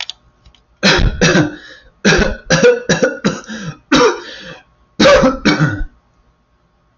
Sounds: Cough